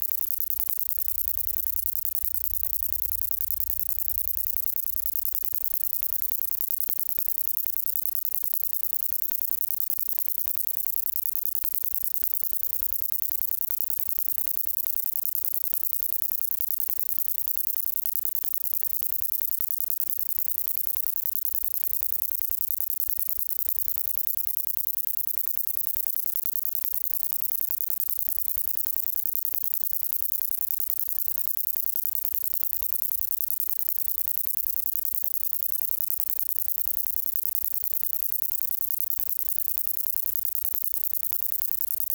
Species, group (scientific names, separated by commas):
Conocephalus fuscus, Orthoptera